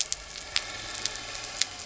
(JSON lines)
{"label": "anthrophony, boat engine", "recorder": "SoundTrap 300"}